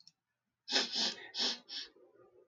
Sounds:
Sniff